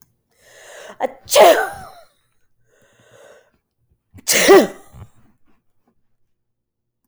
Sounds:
Sneeze